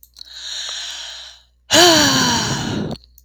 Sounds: Sigh